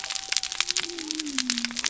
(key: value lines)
label: biophony
recorder: SoundTrap 300